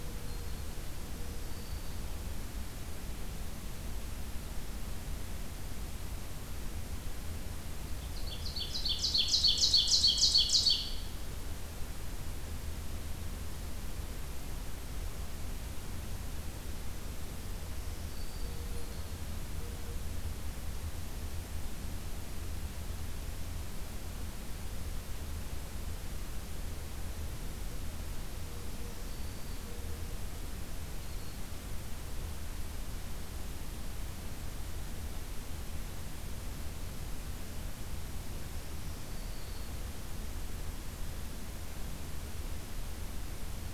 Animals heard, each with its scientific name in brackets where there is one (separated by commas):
Black-throated Green Warbler (Setophaga virens), Ovenbird (Seiurus aurocapilla)